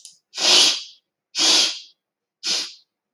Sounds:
Sneeze